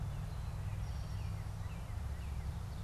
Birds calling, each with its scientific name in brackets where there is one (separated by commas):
Eastern Towhee (Pipilo erythrophthalmus), Northern Cardinal (Cardinalis cardinalis)